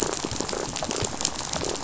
{"label": "biophony, rattle", "recorder": "SoundTrap 500"}
{"label": "biophony, damselfish", "recorder": "SoundTrap 500"}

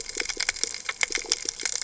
{"label": "biophony", "recorder": "HydroMoth"}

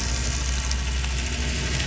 {"label": "anthrophony, boat engine", "recorder": "SoundTrap 500"}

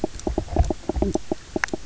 {"label": "biophony, knock croak", "recorder": "SoundTrap 300"}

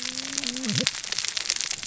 {"label": "biophony, cascading saw", "recorder": "SoundTrap 600 or HydroMoth"}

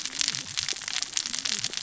{"label": "biophony, cascading saw", "recorder": "SoundTrap 600 or HydroMoth"}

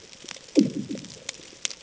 {"label": "anthrophony, bomb", "recorder": "HydroMoth"}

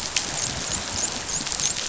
{"label": "biophony, dolphin", "recorder": "SoundTrap 500"}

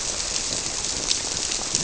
{"label": "biophony", "recorder": "SoundTrap 300"}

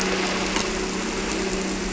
{"label": "anthrophony, boat engine", "recorder": "SoundTrap 300"}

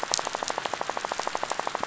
{"label": "biophony, rattle", "recorder": "SoundTrap 500"}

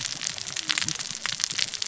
{"label": "biophony, cascading saw", "recorder": "SoundTrap 600 or HydroMoth"}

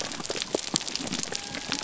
{"label": "biophony", "recorder": "SoundTrap 300"}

